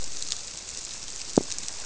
{"label": "biophony", "recorder": "SoundTrap 300"}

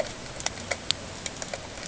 {"label": "ambient", "recorder": "HydroMoth"}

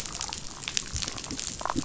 {"label": "biophony, damselfish", "recorder": "SoundTrap 500"}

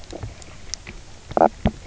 {"label": "biophony, knock croak", "recorder": "SoundTrap 300"}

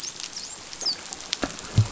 {"label": "biophony, dolphin", "recorder": "SoundTrap 500"}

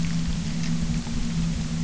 {"label": "anthrophony, boat engine", "recorder": "SoundTrap 300"}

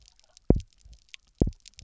{"label": "biophony, double pulse", "recorder": "SoundTrap 300"}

